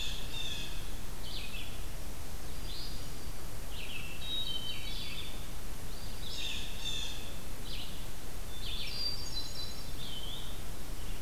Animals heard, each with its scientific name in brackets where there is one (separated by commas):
Blue Jay (Cyanocitta cristata), Eastern Wood-Pewee (Contopus virens), Red-eyed Vireo (Vireo olivaceus), Hermit Thrush (Catharus guttatus)